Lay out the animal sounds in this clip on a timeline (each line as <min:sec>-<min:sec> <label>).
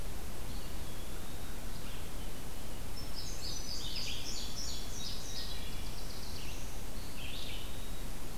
0:00.0-0:08.4 Red-eyed Vireo (Vireo olivaceus)
0:00.4-0:01.6 Eastern Wood-Pewee (Contopus virens)
0:02.8-0:05.6 Indigo Bunting (Passerina cyanea)
0:05.4-0:06.8 Black-throated Blue Warbler (Setophaga caerulescens)
0:06.9-0:08.1 Eastern Wood-Pewee (Contopus virens)